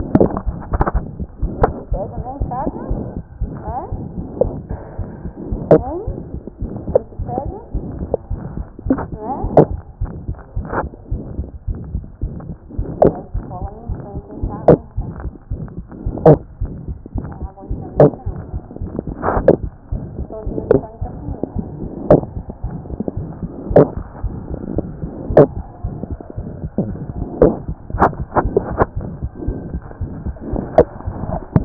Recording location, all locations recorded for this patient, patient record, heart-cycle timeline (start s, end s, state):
aortic valve (AV)
aortic valve (AV)+pulmonary valve (PV)+tricuspid valve (TV)+mitral valve (MV)
#Age: Child
#Sex: Male
#Height: 92.0 cm
#Weight: 10.9 kg
#Pregnancy status: False
#Murmur: Present
#Murmur locations: aortic valve (AV)+mitral valve (MV)+pulmonary valve (PV)+tricuspid valve (TV)
#Most audible location: tricuspid valve (TV)
#Systolic murmur timing: Holosystolic
#Systolic murmur shape: Diamond
#Systolic murmur grading: III/VI or higher
#Systolic murmur pitch: High
#Systolic murmur quality: Harsh
#Diastolic murmur timing: nan
#Diastolic murmur shape: nan
#Diastolic murmur grading: nan
#Diastolic murmur pitch: nan
#Diastolic murmur quality: nan
#Outcome: Abnormal
#Campaign: 2014 screening campaign
0.00	2.90	unannotated
2.90	2.99	S1
2.99	3.16	systole
3.16	3.24	S2
3.24	3.40	diastole
3.40	3.49	S1
3.49	3.66	systole
3.66	3.74	S2
3.74	3.92	diastole
3.92	4.00	S1
4.00	4.16	systole
4.16	4.24	S2
4.24	4.43	diastole
4.43	4.50	S1
4.50	4.70	systole
4.70	4.78	S2
4.78	4.98	diastole
4.98	5.06	S1
5.06	5.24	systole
5.24	5.32	S2
5.32	5.52	diastole
5.52	31.65	unannotated